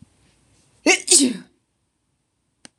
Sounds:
Sneeze